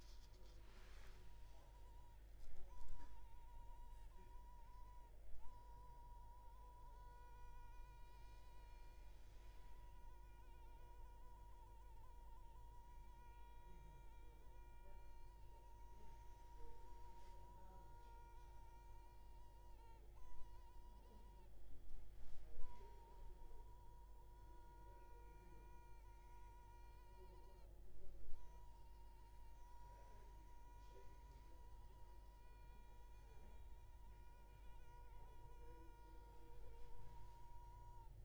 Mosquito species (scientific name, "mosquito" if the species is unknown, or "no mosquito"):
Culex pipiens complex